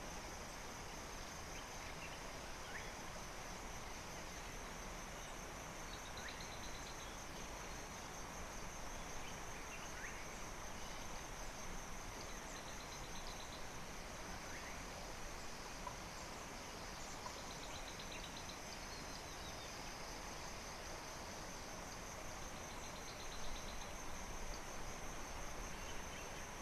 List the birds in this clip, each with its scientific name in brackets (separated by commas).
Spectacled Weaver (Ploceus ocularis), Slate-colored Boubou (Laniarius funebris), African Bare-eyed Thrush (Turdus tephronotus)